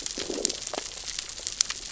{"label": "biophony, growl", "recorder": "SoundTrap 600 or HydroMoth"}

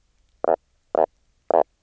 {"label": "biophony", "recorder": "SoundTrap 300"}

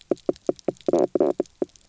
{"label": "biophony, knock croak", "recorder": "SoundTrap 300"}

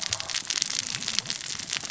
{"label": "biophony, cascading saw", "recorder": "SoundTrap 600 or HydroMoth"}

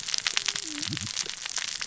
{"label": "biophony, cascading saw", "recorder": "SoundTrap 600 or HydroMoth"}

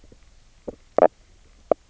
{"label": "biophony", "recorder": "SoundTrap 300"}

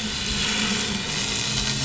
{"label": "anthrophony, boat engine", "recorder": "SoundTrap 500"}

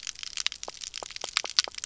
{"label": "biophony, pulse", "recorder": "SoundTrap 300"}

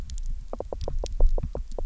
{"label": "biophony, knock", "recorder": "SoundTrap 300"}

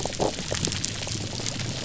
{"label": "biophony", "recorder": "SoundTrap 300"}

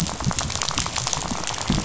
{"label": "biophony, rattle", "recorder": "SoundTrap 500"}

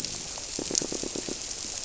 {"label": "biophony, squirrelfish (Holocentrus)", "recorder": "SoundTrap 300"}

